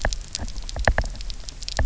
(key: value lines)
label: biophony, knock
recorder: SoundTrap 300